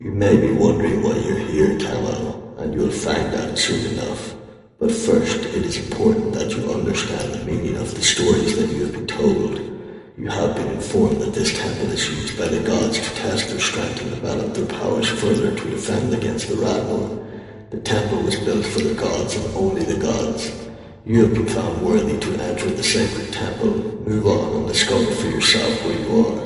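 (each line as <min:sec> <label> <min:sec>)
0:00.0 A man is talking loudly with an echo. 0:26.5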